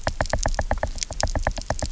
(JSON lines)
{"label": "biophony, knock", "recorder": "SoundTrap 300"}